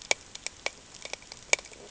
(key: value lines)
label: ambient
recorder: HydroMoth